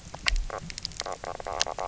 {"label": "biophony, knock croak", "recorder": "SoundTrap 300"}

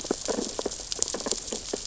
{"label": "biophony, sea urchins (Echinidae)", "recorder": "SoundTrap 600 or HydroMoth"}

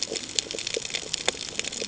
{"label": "ambient", "recorder": "HydroMoth"}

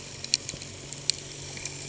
{"label": "anthrophony, boat engine", "recorder": "HydroMoth"}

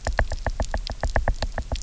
{"label": "biophony, knock", "recorder": "SoundTrap 300"}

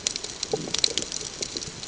{"label": "ambient", "recorder": "HydroMoth"}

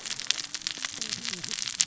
{"label": "biophony, cascading saw", "recorder": "SoundTrap 600 or HydroMoth"}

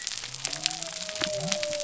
{"label": "biophony", "recorder": "SoundTrap 300"}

